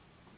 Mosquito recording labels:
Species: Anopheles gambiae s.s.; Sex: female; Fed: unfed; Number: one; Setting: insect culture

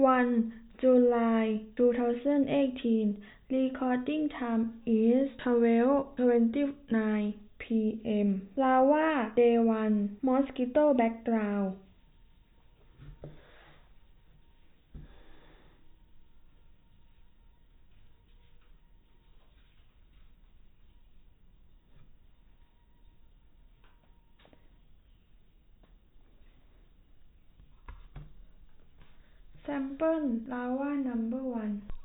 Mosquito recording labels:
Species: no mosquito; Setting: cup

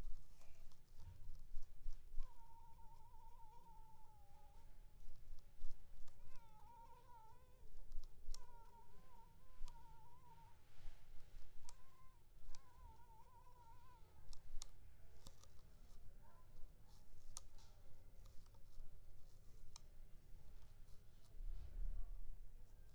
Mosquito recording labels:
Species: Culex pipiens complex; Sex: female; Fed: blood-fed; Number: one; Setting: cup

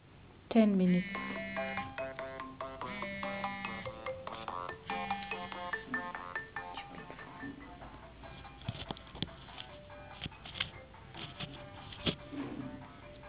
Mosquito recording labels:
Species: no mosquito; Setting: insect culture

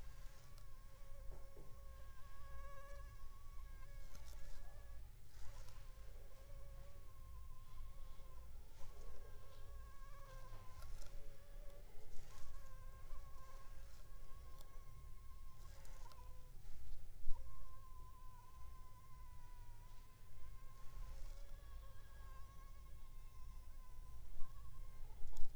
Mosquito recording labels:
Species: Anopheles funestus s.s.; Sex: female; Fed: unfed; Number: one; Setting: cup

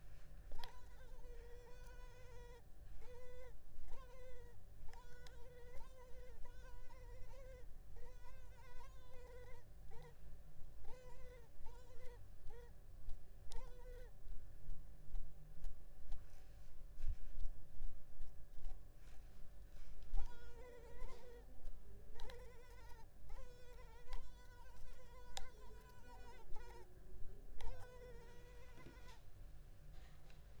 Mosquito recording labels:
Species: Culex pipiens complex; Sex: female; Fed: unfed; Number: one; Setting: cup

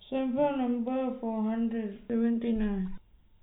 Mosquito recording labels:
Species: no mosquito; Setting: cup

